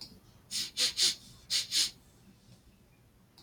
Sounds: Sniff